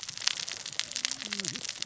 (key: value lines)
label: biophony, cascading saw
recorder: SoundTrap 600 or HydroMoth